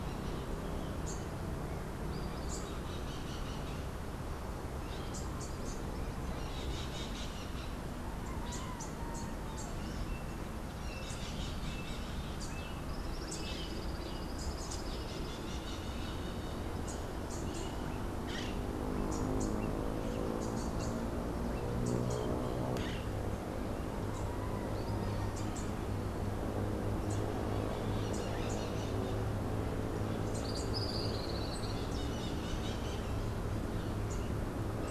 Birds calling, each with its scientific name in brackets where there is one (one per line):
Crimson-fronted Parakeet (Psittacara finschi)
Rufous-capped Warbler (Basileuterus rufifrons)
Tropical Kingbird (Tyrannus melancholicus)